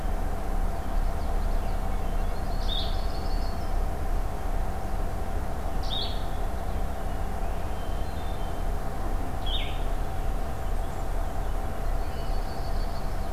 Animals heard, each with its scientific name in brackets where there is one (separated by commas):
Blue-headed Vireo (Vireo solitarius), Common Yellowthroat (Geothlypis trichas), Blackburnian Warbler (Setophaga fusca), Yellow-rumped Warbler (Setophaga coronata), Hermit Thrush (Catharus guttatus)